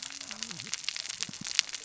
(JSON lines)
{"label": "biophony, cascading saw", "recorder": "SoundTrap 600 or HydroMoth"}